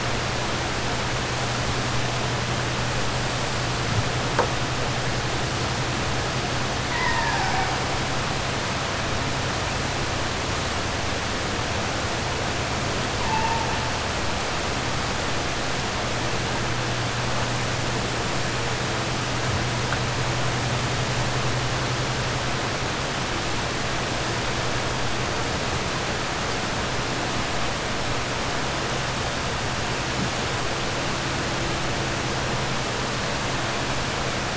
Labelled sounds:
6.8	7.7	killer whale, 0.73 to 2.8 kHz

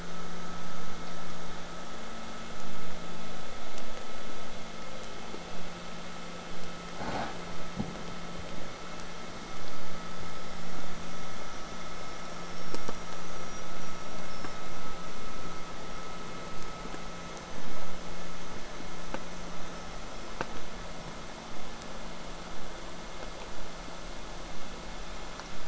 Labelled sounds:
9.8	15.3	killer whale, southern resident, J pod, whistle, 4.7 to 8.0 kHz
19.7	20.4	killer whale, southern resident, J pod, whistle, 5.1 to 5.7 kHz
20.5	25.5	vessel noise, 0 to 8.0 kHz

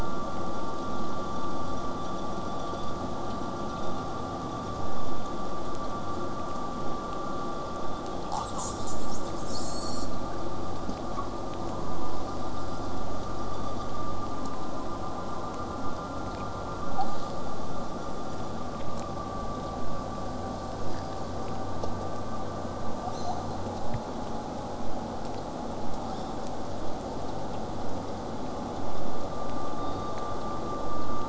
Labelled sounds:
11.8	16.8	vessel noise, 0 to 8.0 kHz
26.1	26.4	killer whale, southern resident, J pod, 2.9 to 8.0 kHz
29.8	30.3	killer whale, southern resident, J pod, 3.5 to 4.8 kHz

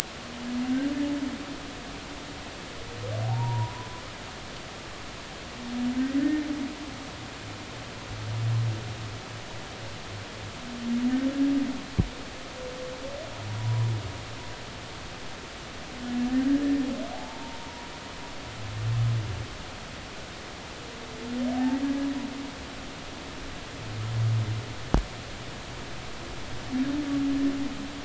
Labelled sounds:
3.2	3.9	humpback whale, 0.80 to 1.1 kHz
6.2	6.5	humpback whale, 1.7 to 1.9 kHz
13.6	13.9	humpback whale, 0.93 to 1.0 kHz
16.4	16.6	humpback whale, 1.5 to 1.7 kHz
17.1	17.9	humpback whale, 0.80 to 0.99 kHz
21.5	21.8	humpback whale, 0.80 to 0.93 kHz

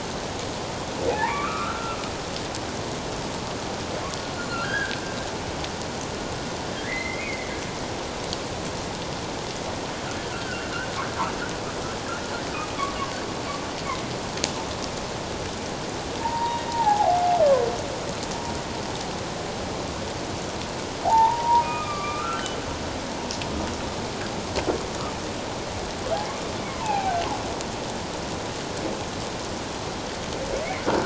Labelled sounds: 1.1	2.0	humpback whale, 0.78 to 2.4 kHz
4.4	5.0	humpback whale, 1.3 to 4.3 kHz
6.7	7.5	humpback whale, 1.6 to 2.3 kHz
10.3	10.7	humpback whale, 1.3 to 1.7 kHz
16.2	17.2	humpback whale, 0.78 to 1.2 kHz
21.0	22.5	humpback whale, 0.78 to 2.5 kHz
26.7	27.1	humpback whale, 0.78 to 1.1 kHz

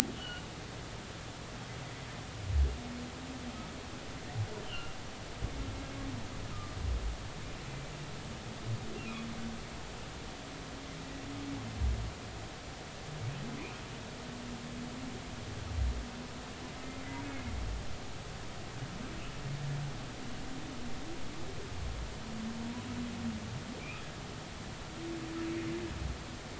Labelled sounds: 0.1	0.4	humpback whale, 2.8 to 3.1 kHz
4.6	5.0	humpback whale, 2.7 to 3.2 kHz
6.5	6.8	humpback whale, 1.2 to 1.3 kHz

